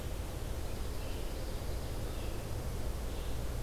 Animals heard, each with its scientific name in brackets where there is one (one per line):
Dark-eyed Junco (Junco hyemalis)
Ovenbird (Seiurus aurocapilla)
Red-eyed Vireo (Vireo olivaceus)